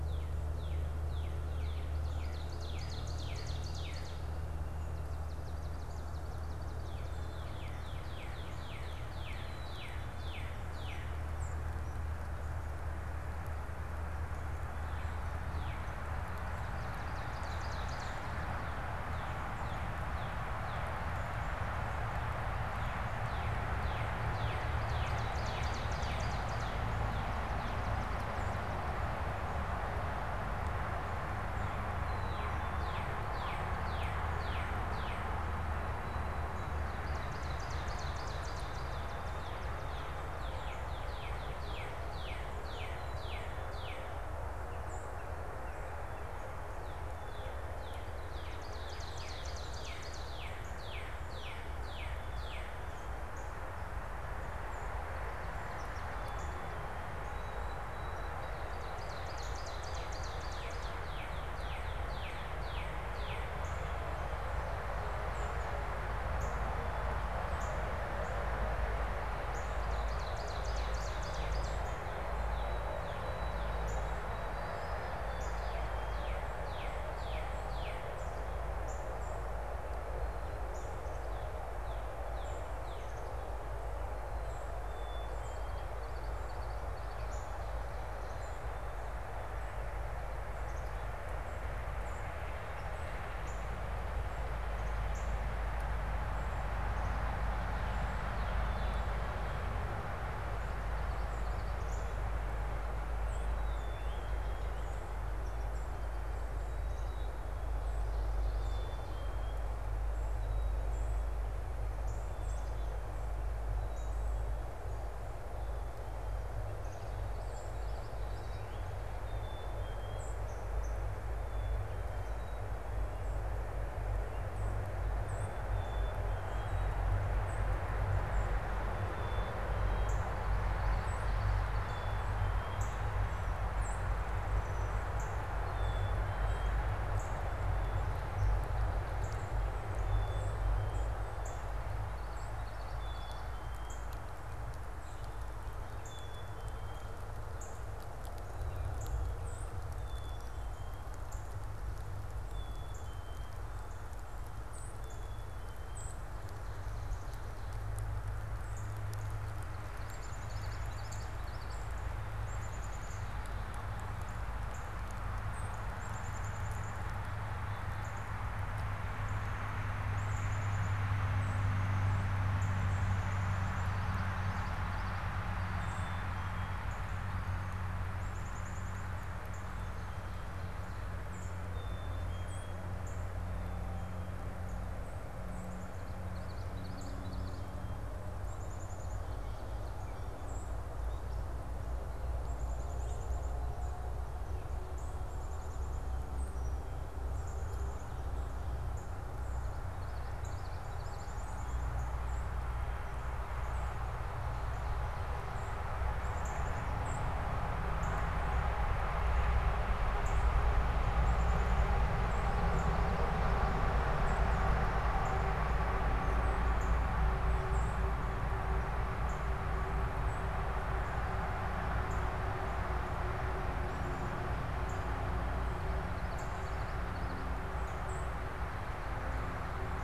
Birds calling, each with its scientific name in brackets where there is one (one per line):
Black-capped Chickadee (Poecile atricapillus)
Common Yellowthroat (Geothlypis trichas)
Swamp Sparrow (Melospiza georgiana)
White-throated Sparrow (Zonotrichia albicollis)
Northern Cardinal (Cardinalis cardinalis)
Song Sparrow (Melospiza melodia)
Ovenbird (Seiurus aurocapilla)